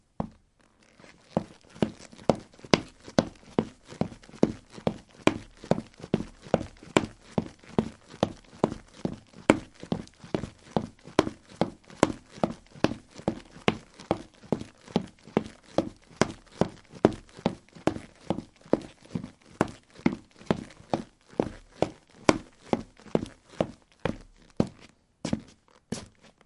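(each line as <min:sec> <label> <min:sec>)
0:00.0 Someone wearing trekking boots walks quickly on a tiled floor inside a building. 0:26.5
0:24.5 Footsteps of a person in trekking boots slowing down while walking on a tiled floor indoors. 0:26.5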